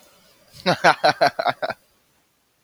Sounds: Laughter